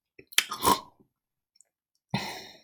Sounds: Throat clearing